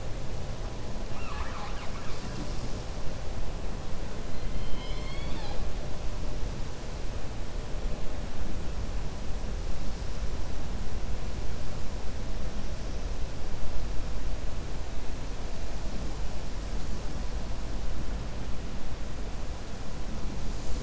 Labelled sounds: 1.0	2.8	killer whale, 0.76 to 7.7 kHz
4.4	5.6	killer whale, 0.49 to 5.2 kHz

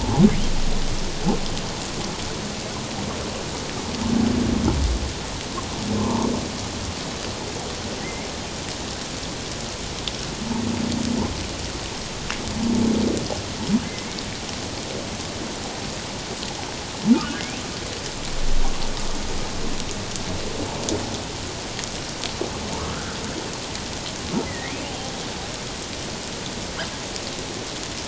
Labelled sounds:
0.0	0.3	humpback whale, 0.78 to 1.1 kHz
6.0	6.3	humpback whale, 0.88 to 1.2 kHz
8.0	8.3	humpback whale, 1.8 to 2.3 kHz
17.1	17.4	humpback whale, 1.1 to 1.7 kHz
22.8	23.2	humpback whale, 1.2 to 1.6 kHz
24.4	24.7	humpback whale, 1.8 to 2.2 kHz

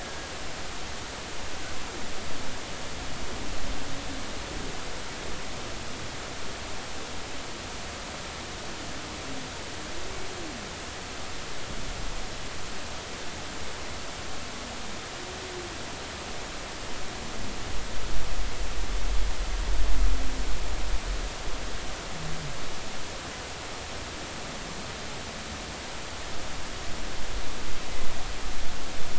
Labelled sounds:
0.0	0.3	humpback whale, 1.6 to 1.9 kHz

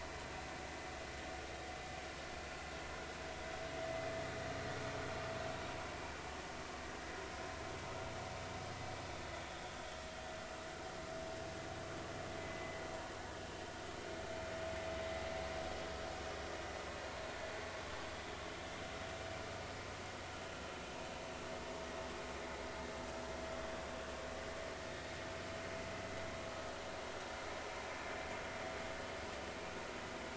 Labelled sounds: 12.4	12.8	vessel noise, 1.9 to 2.1 kHz

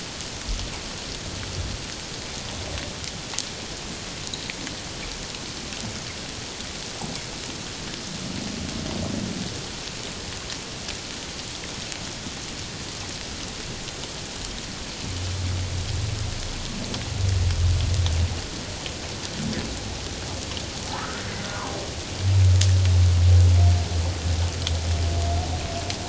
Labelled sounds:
20.9	21.2	humpback whale, 1.1 to 1.6 kHz

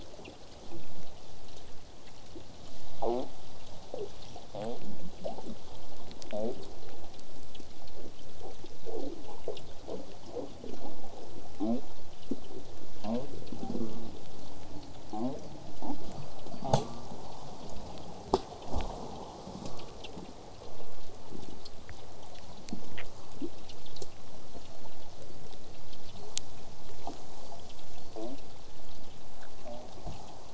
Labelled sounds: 13.6	14.2	killer whale, southern resident, J pod, call S04, 0.12 to 0.93 kHz
14.4	16.7	killer whale, southern resident, J pod, whistle, 4.1 to 5.1 kHz
15.1	15.4	killer whale, southern resident, J pod, call S05, 0.12 to 1.2 kHz
15.8	16.0	killer whale, southern resident, J pod, call S05, 0.12 to 1.1 kHz
16.6	16.9	killer whale, southern resident, J pod, call S05, 0.12 to 1.3 kHz
24.5	24.9	killer whale, southern resident, J pod, whistle, 4.0 to 4.5 kHz
25.7	26.5	killer whale, southern resident, J pod, whistle, 4.1 to 5.3 kHz
27.2	29.1	killer whale, southern resident, J pod, whistle, 4.1 to 4.9 kHz

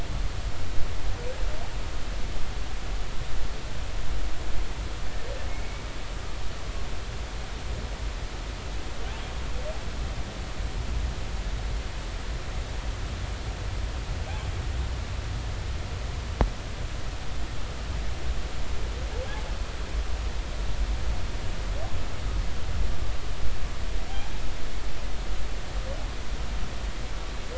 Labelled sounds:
5.5	5.8	humpback whale, 2.1 to 2.3 kHz

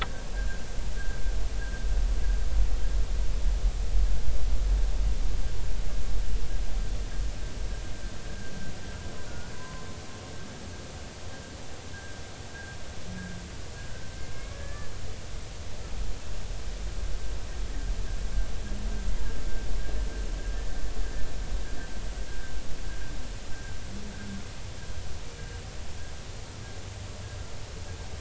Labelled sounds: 9.3	9.9	humpback whale, 0.96 to 1.5 kHz
12.5	12.8	humpback whale, 1.5 to 1.7 kHz
14.5	14.9	humpback whale, 1.7 to 1.8 kHz

